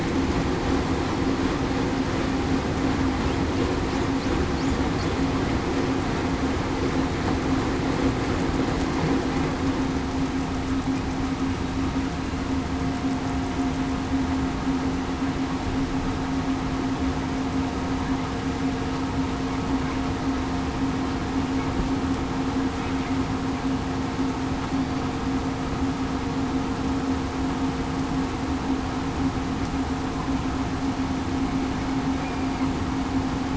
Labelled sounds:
24.7	25.1	killer whale, southern resident, 4.5 to 4.7 kHz

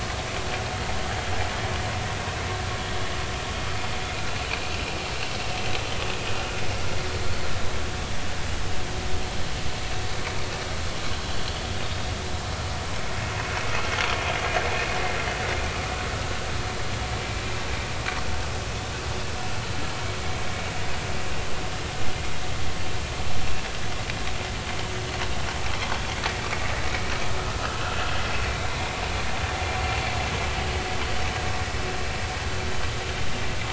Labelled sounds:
27.5	28.7	vessel noise, 1.2 to 2.5 kHz

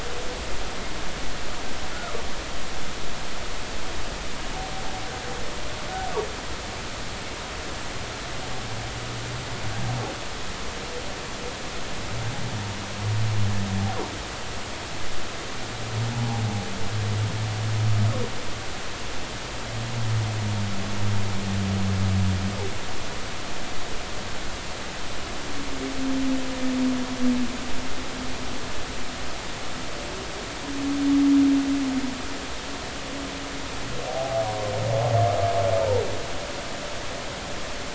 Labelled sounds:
16.1	16.4	humpback whale, 0.80 to 0.99 kHz
34.1	34.4	humpback whale, 0.80 to 0.83 kHz

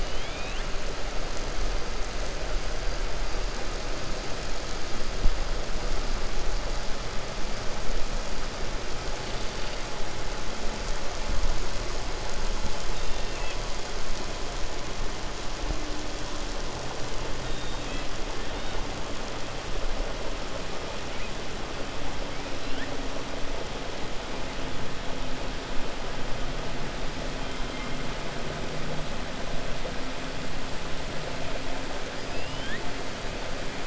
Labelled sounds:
0.0	0.7	killer whale, 1.8 to 3.9 kHz
32.3	32.8	killer whale, 1.6 to 5.1 kHz

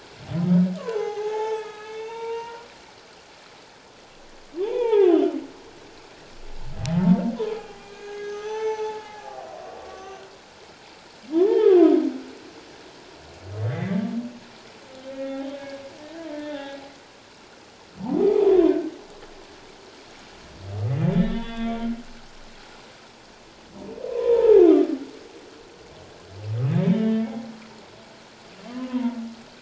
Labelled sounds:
0.9	2.7	humpback whale, 0.78 to 6.3 kHz
4.6	5.4	humpback whale, 0.78 to 3.6 kHz
6.8	10.2	humpback whale, 0.78 to 6.2 kHz
11.3	11.8	humpback whale, 0.78 to 1.9 kHz
13.7	14.0	humpback whale, 1.8 to 3.7 kHz
15.1	16.8	humpback whale, 0.78 to 3.7 kHz
18.0	18.3	humpback whale, 0.78 to 1.1 kHz
21.1	21.8	humpback whale, 1.5 to 3.8 kHz
24.1	24.6	humpback whale, 0.78 to 1.1 kHz
26.9	27.5	humpback whale, 0.78 to 2.0 kHz
28.7	29.2	humpback whale, 0.88 to 1.1 kHz

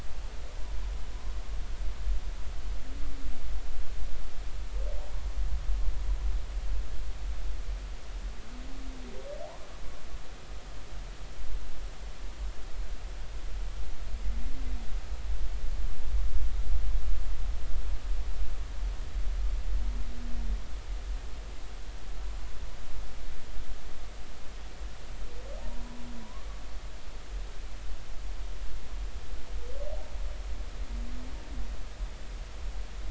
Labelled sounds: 25.6	26.5	humpback whale, 0.80 to 1.2 kHz

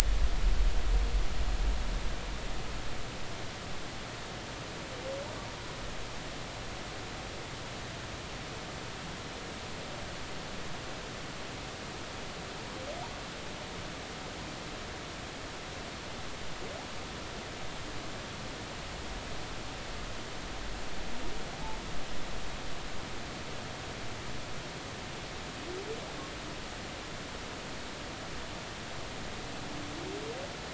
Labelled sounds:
21.5	21.8	humpback whale, 0.80 to 0.93 kHz

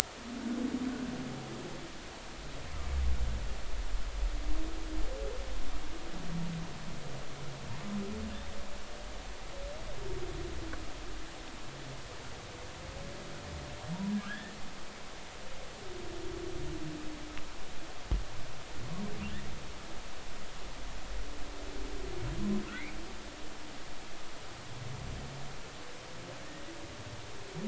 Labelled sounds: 14.1	14.6	humpback whale, 1.2 to 3.6 kHz

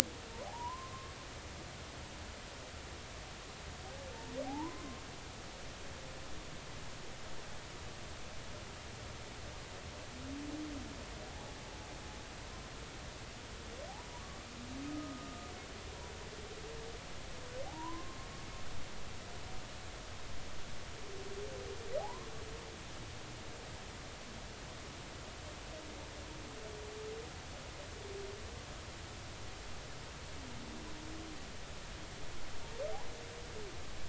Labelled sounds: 0.5	1.1	humpback whale, 0.80 to 1.2 kHz
4.5	5.0	humpback whale, 0.80 to 1.1 kHz
11.3	11.5	humpback whale, 0.80 to 0.99 kHz
14.9	15.5	humpback whale, 1.2 to 1.3 kHz
17.7	18.2	humpback whale, 0.80 to 1.1 kHz
22.0	22.3	humpback whale, 0.80 to 1.1 kHz

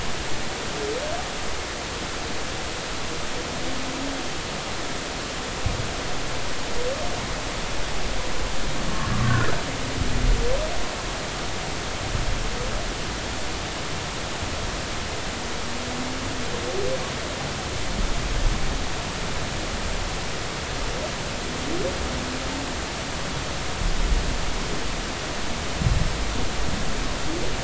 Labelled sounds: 9.1	9.5	humpback whale, 1.0 to 1.9 kHz

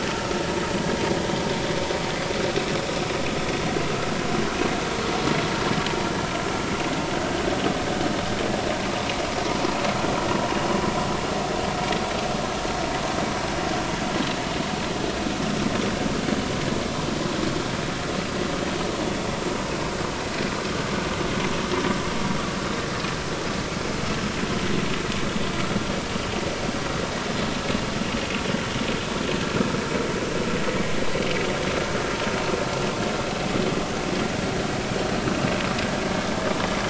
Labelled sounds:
7.1	7.4	vessel noise, 1.5 to 1.6 kHz

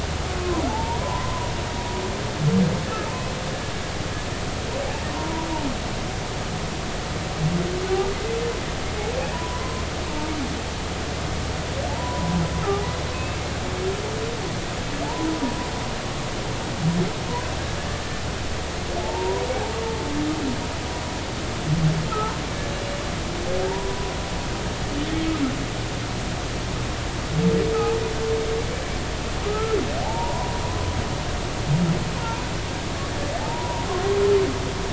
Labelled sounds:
0.4	1.5	humpback whale, 0.80 to 1.1 kHz
5.1	5.5	humpback whale, 0.90 to 1.1 kHz
9.3	9.8	humpback whale, 0.93 to 1.1 kHz
11.9	12.4	humpback whale, 0.80 to 1.1 kHz
13.1	13.4	humpback whale, 2.5 to 2.7 kHz
15.0	15.3	humpback whale, 0.83 to 1.1 kHz
19.0	19.4	humpback whale, 0.83 to 1.0 kHz
22.4	22.7	humpback whale, 2.2 to 2.4 kHz
23.7	24.1	humpback whale, 0.86 to 1.0 kHz
29.5	30.5	humpback whale, 0.80 to 1.4 kHz
33.4	33.8	humpback whale, 0.80 to 1.0 kHz

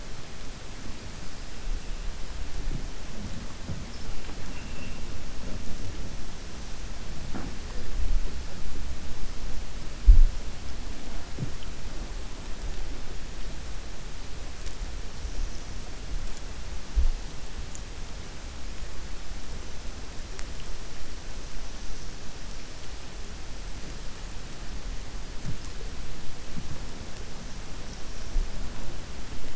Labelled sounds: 4.4	5.0	killer whale, 2.0 to 2.9 kHz

